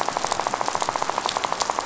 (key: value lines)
label: biophony, rattle
recorder: SoundTrap 500